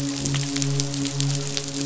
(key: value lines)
label: biophony, midshipman
recorder: SoundTrap 500

label: biophony
recorder: SoundTrap 500